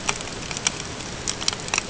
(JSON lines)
{"label": "ambient", "recorder": "HydroMoth"}